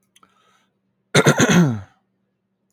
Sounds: Throat clearing